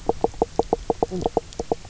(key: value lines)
label: biophony, knock croak
recorder: SoundTrap 300